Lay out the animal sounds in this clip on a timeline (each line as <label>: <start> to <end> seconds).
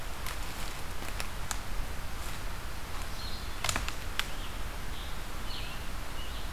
Blue-headed Vireo (Vireo solitarius): 3.0 to 6.5 seconds
Scarlet Tanager (Piranga olivacea): 4.1 to 6.5 seconds